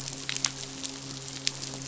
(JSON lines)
{"label": "biophony, midshipman", "recorder": "SoundTrap 500"}